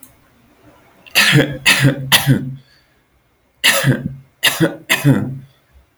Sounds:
Cough